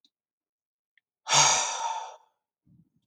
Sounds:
Sigh